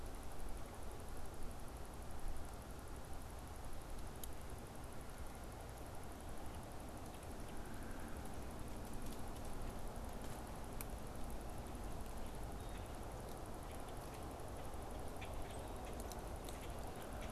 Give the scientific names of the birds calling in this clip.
Agelaius phoeniceus